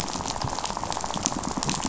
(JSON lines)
{"label": "biophony, rattle", "recorder": "SoundTrap 500"}